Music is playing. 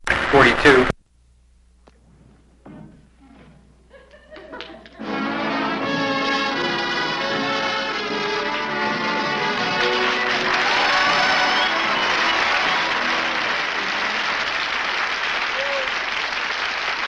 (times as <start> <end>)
4.3 17.1